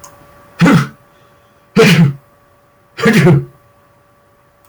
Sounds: Sneeze